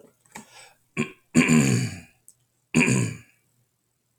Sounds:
Throat clearing